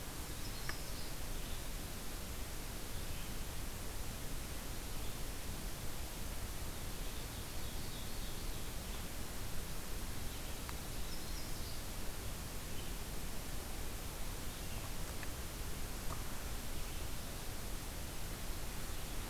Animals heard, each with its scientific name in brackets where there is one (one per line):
Ovenbird (Seiurus aurocapilla)
Yellow-rumped Warbler (Setophaga coronata)